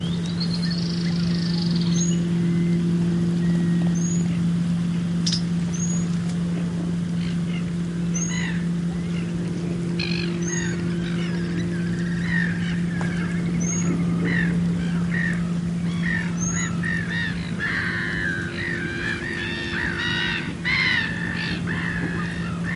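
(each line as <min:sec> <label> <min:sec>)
0:00.0 Occasional seagull mews are heard over a faint, consistent boat engine. 0:22.8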